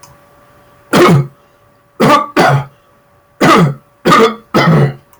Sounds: Cough